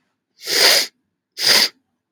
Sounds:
Sniff